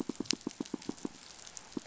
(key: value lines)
label: biophony
recorder: SoundTrap 500